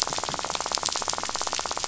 {"label": "biophony, rattle", "recorder": "SoundTrap 500"}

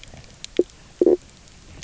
{"label": "biophony, knock croak", "recorder": "SoundTrap 300"}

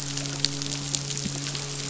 {"label": "biophony, midshipman", "recorder": "SoundTrap 500"}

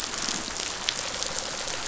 {"label": "biophony, pulse", "recorder": "SoundTrap 500"}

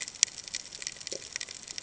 {"label": "ambient", "recorder": "HydroMoth"}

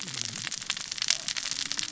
{"label": "biophony, cascading saw", "recorder": "SoundTrap 600 or HydroMoth"}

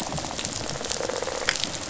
{"label": "biophony, rattle response", "recorder": "SoundTrap 500"}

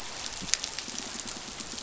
{"label": "biophony", "recorder": "SoundTrap 500"}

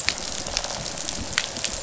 {"label": "biophony, rattle response", "recorder": "SoundTrap 500"}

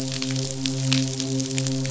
{"label": "biophony, midshipman", "recorder": "SoundTrap 500"}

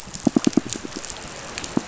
{"label": "biophony, pulse", "recorder": "SoundTrap 500"}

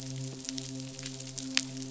{"label": "biophony, midshipman", "recorder": "SoundTrap 500"}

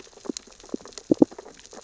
{"label": "biophony, sea urchins (Echinidae)", "recorder": "SoundTrap 600 or HydroMoth"}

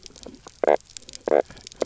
{"label": "biophony, knock croak", "recorder": "SoundTrap 300"}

